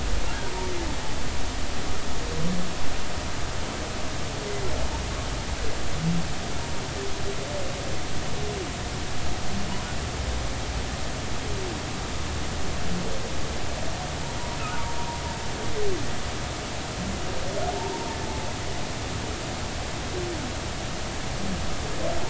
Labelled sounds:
17.8	18.5	humpback whale, 0.83 to 1.0 kHz

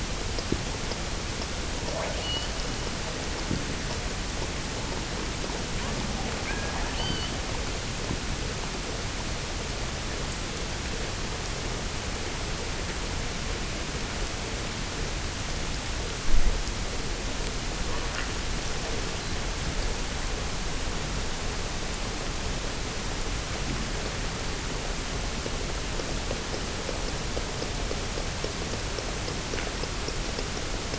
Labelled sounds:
1.8	2.6	killer whale, offshore, 0.36 to 4.7 kHz
6.4	7.5	killer whale, offshore, 1.5 to 4.9 kHz

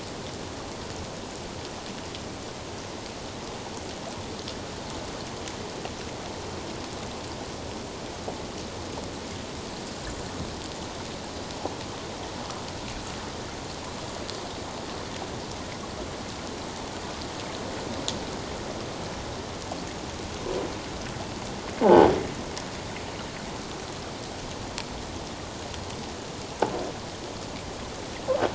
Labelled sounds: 21.8	22.1	croaking sound likely from a nearby submerged object, 0.78 to 1.0 kHz

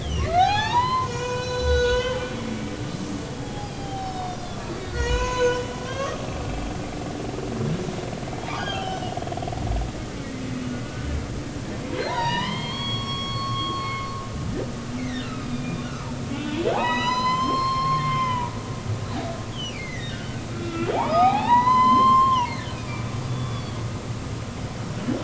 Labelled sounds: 0.0	2.8	humpback whale, 0.80 to 7.0 kHz
3.4	4.4	humpback whale, 0.80 to 5.4 kHz
4.8	6.2	humpback whale, 0.90 to 7.1 kHz
8.4	9.8	humpback whale, 0.80 to 6.1 kHz
10.8	11.1	humpback whale, 1.4 to 1.5 kHz
12.0	14.1	humpback whale, 0.83 to 6.0 kHz
15.0	18.5	humpback whale, 0.80 to 7.4 kHz
19.5	23.8	humpback whale, 0.80 to 7.5 kHz

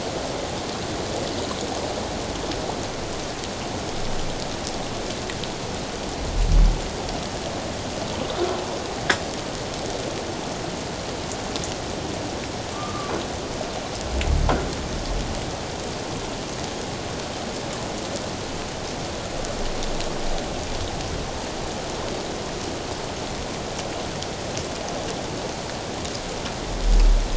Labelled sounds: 12.7	13.1	humpback whale, 1.1 to 1.2 kHz

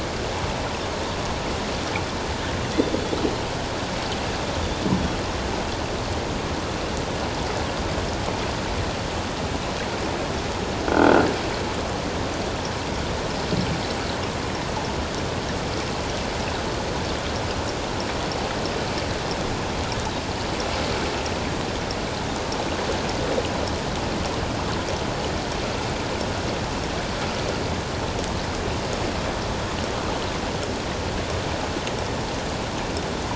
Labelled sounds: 10.9	11.3	croaking sound likely from a nearby submerged object, 1.3 to 1.6 kHz

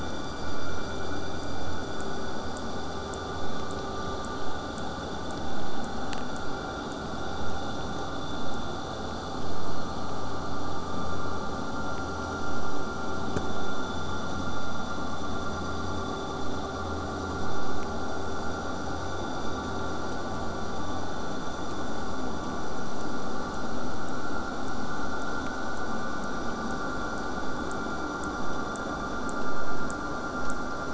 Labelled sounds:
0.3	7.0	killer whale, southern resident, J pod, 5.4 to 8.0 kHz

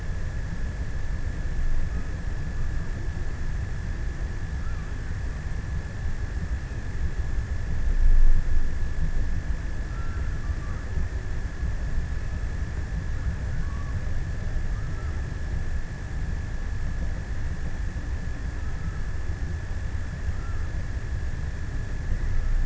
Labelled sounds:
9.6	11.7	killer whale, offshore, 0.78 to 2.1 kHz
13.2	15.9	killer whale, offshore, 0.54 to 1.7 kHz

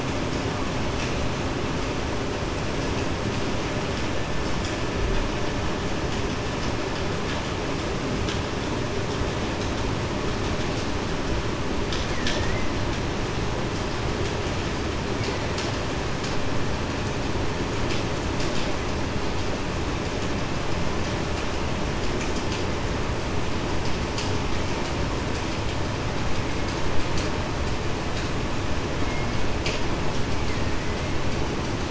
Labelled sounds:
12.1	12.5	killer whale, Bigg's (transient), 1.7 to 2.0 kHz

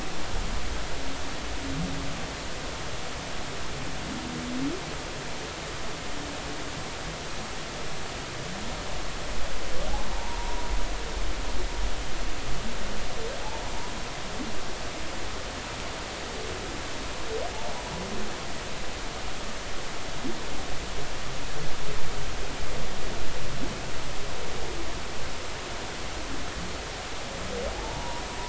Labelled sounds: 10.1	10.7	humpback whale, 0.83 to 1.0 kHz
27.8	28.2	humpback whale, 0.83 to 1.0 kHz

